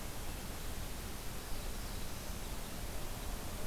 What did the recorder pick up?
Red Crossbill, Black-throated Blue Warbler